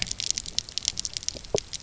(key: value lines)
label: biophony, pulse
recorder: SoundTrap 300